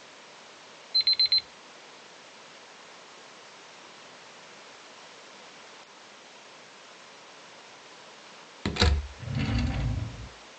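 First, an alarm can be heard. Then a door slams. After that, a drawer opens or closes.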